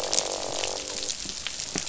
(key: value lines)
label: biophony, croak
recorder: SoundTrap 500